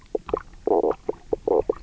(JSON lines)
{"label": "biophony, knock croak", "recorder": "SoundTrap 300"}